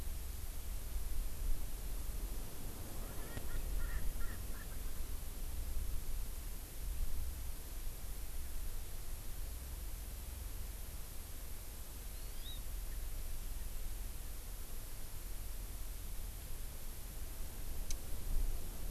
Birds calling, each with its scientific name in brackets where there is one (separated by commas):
Hawaii Amakihi (Chlorodrepanis virens), Erckel's Francolin (Pternistis erckelii)